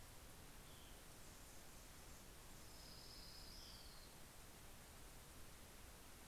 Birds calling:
Anna's Hummingbird (Calypte anna), Orange-crowned Warbler (Leiothlypis celata), Hermit Thrush (Catharus guttatus)

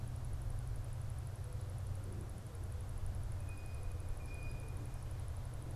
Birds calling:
Blue Jay (Cyanocitta cristata)

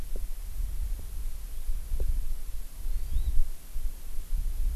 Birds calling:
Hawaii Amakihi (Chlorodrepanis virens)

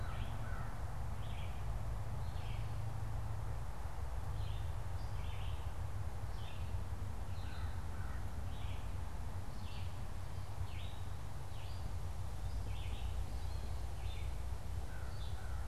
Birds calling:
Gray Catbird (Dumetella carolinensis), Red-eyed Vireo (Vireo olivaceus), American Crow (Corvus brachyrhynchos)

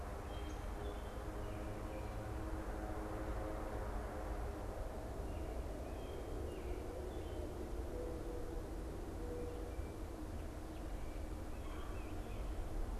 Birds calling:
American Robin (Turdus migratorius), Red-bellied Woodpecker (Melanerpes carolinus), Mourning Dove (Zenaida macroura)

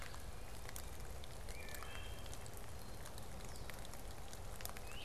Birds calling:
Red-bellied Woodpecker (Melanerpes carolinus), Wood Thrush (Hylocichla mustelina)

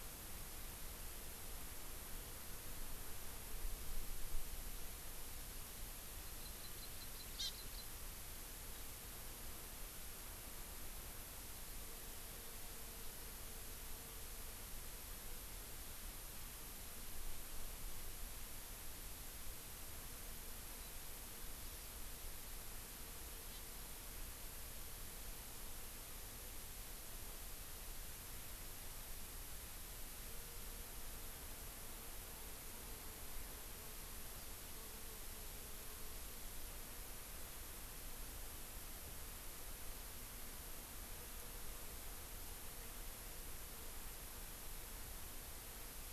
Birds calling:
Hawaii Amakihi (Chlorodrepanis virens)

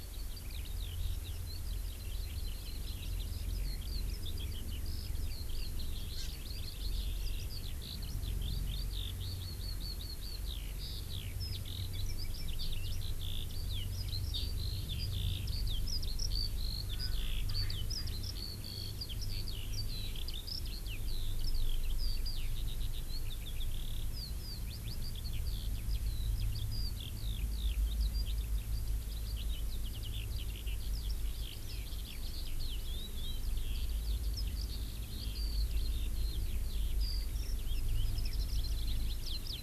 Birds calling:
Eurasian Skylark (Alauda arvensis), Erckel's Francolin (Pternistis erckelii), Hawaii Amakihi (Chlorodrepanis virens)

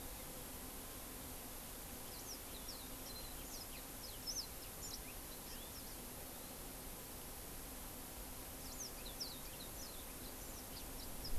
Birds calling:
Warbling White-eye (Zosterops japonicus), House Finch (Haemorhous mexicanus)

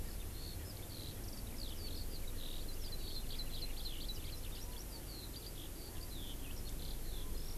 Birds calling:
Eurasian Skylark (Alauda arvensis), Hawaii Amakihi (Chlorodrepanis virens)

